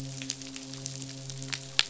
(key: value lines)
label: biophony, midshipman
recorder: SoundTrap 500